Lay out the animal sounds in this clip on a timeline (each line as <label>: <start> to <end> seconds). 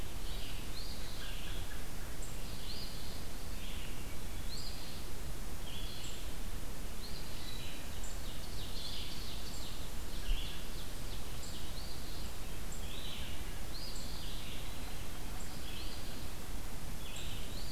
Red-eyed Vireo (Vireo olivaceus): 0.0 to 17.7 seconds
Eastern Phoebe (Sayornis phoebe): 0.6 to 1.4 seconds
American Robin (Turdus migratorius): 0.9 to 2.0 seconds
Eastern Phoebe (Sayornis phoebe): 2.6 to 3.4 seconds
Eastern Phoebe (Sayornis phoebe): 4.4 to 5.3 seconds
Eastern Phoebe (Sayornis phoebe): 6.8 to 7.6 seconds
Ovenbird (Seiurus aurocapilla): 8.1 to 12.3 seconds
Eastern Phoebe (Sayornis phoebe): 11.6 to 12.3 seconds
Eastern Phoebe (Sayornis phoebe): 13.6 to 14.4 seconds